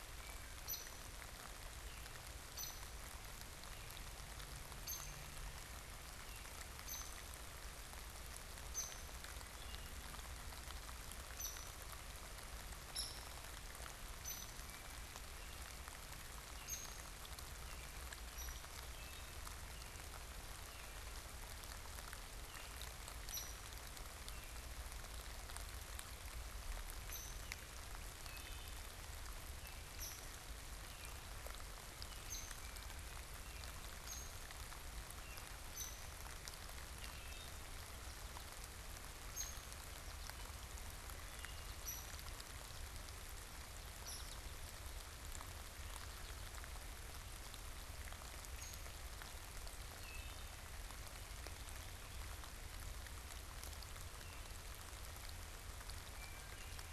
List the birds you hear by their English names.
Hairy Woodpecker, Wood Thrush, American Goldfinch